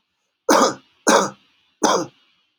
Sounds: Cough